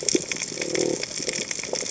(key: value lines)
label: biophony
recorder: HydroMoth